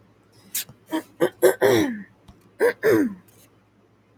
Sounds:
Throat clearing